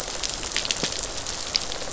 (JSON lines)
{"label": "biophony, rattle response", "recorder": "SoundTrap 500"}